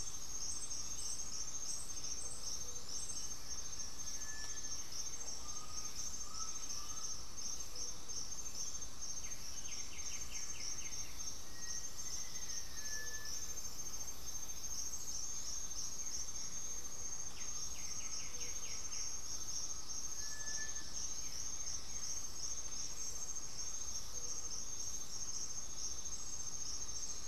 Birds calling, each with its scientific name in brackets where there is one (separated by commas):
Gray-fronted Dove (Leptotila rufaxilla), Bluish-fronted Jacamar (Galbula cyanescens), White-winged Becard (Pachyramphus polychopterus), Blue-gray Saltator (Saltator coerulescens), Cinereous Tinamou (Crypturellus cinereus), unidentified bird, Black-throated Antbird (Myrmophylax atrothorax), Undulated Tinamou (Crypturellus undulatus), Black-faced Antthrush (Formicarius analis)